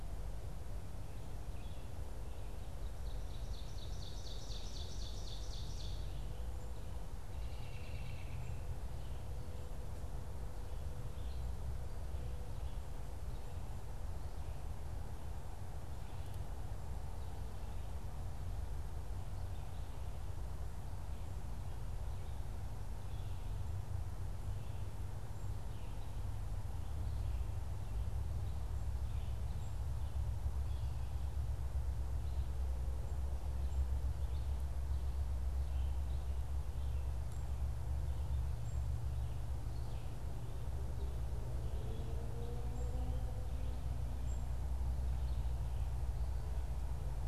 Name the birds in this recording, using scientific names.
Vireo olivaceus, Seiurus aurocapilla, Turdus migratorius, Poecile atricapillus